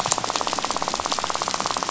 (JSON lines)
{"label": "biophony, rattle", "recorder": "SoundTrap 500"}